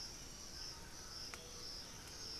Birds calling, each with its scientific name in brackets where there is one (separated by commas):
Black-billed Thrush (Turdus ignobilis), Buff-throated Saltator (Saltator maximus), White-throated Toucan (Ramphastos tucanus), Thrush-like Wren (Campylorhynchus turdinus), Undulated Tinamou (Crypturellus undulatus)